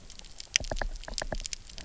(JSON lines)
{"label": "biophony, knock", "recorder": "SoundTrap 300"}